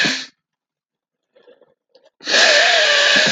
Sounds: Sniff